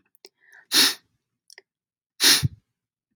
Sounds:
Sniff